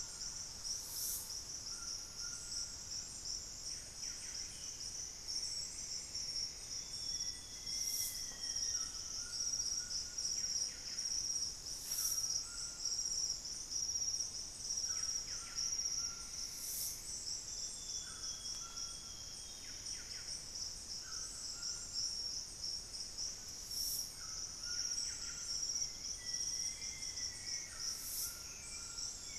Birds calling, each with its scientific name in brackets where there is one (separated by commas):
Plumbeous Antbird (Myrmelastes hyperythrus), unidentified bird, Black-faced Antthrush (Formicarius analis), Golden-crowned Spadebill (Platyrinchus coronatus), Hauxwell's Thrush (Turdus hauxwelli), Buff-breasted Wren (Cantorchilus leucotis), Amazonian Grosbeak (Cyanoloxia rothschildii), Thrush-like Wren (Campylorhynchus turdinus), White-throated Toucan (Ramphastos tucanus)